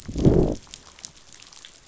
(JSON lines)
{"label": "biophony, growl", "recorder": "SoundTrap 500"}